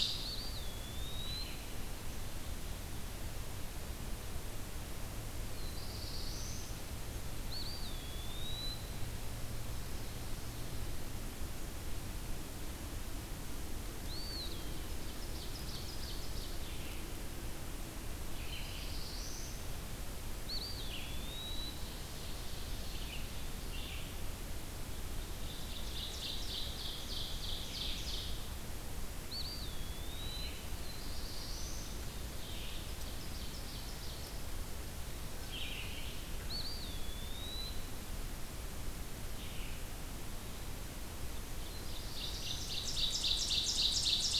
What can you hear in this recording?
Eastern Wood-Pewee, Black-throated Blue Warbler, Ovenbird, Red-eyed Vireo